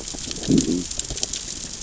{"label": "biophony, growl", "recorder": "SoundTrap 600 or HydroMoth"}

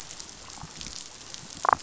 {"label": "biophony, damselfish", "recorder": "SoundTrap 500"}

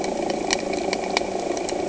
{"label": "anthrophony, boat engine", "recorder": "HydroMoth"}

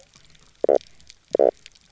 {"label": "biophony, knock croak", "recorder": "SoundTrap 300"}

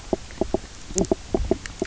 {"label": "biophony, knock croak", "recorder": "SoundTrap 300"}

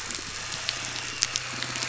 {"label": "anthrophony, boat engine", "recorder": "SoundTrap 500"}
{"label": "biophony", "recorder": "SoundTrap 500"}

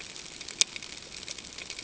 {"label": "ambient", "recorder": "HydroMoth"}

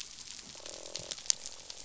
{"label": "biophony, croak", "recorder": "SoundTrap 500"}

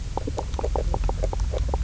{"label": "biophony, knock croak", "recorder": "SoundTrap 300"}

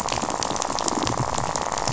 {"label": "biophony, rattle", "recorder": "SoundTrap 500"}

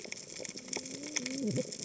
{"label": "biophony, cascading saw", "recorder": "HydroMoth"}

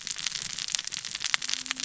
{"label": "biophony, cascading saw", "recorder": "SoundTrap 600 or HydroMoth"}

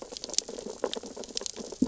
{"label": "biophony, sea urchins (Echinidae)", "recorder": "SoundTrap 600 or HydroMoth"}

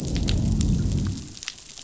{"label": "biophony, growl", "recorder": "SoundTrap 500"}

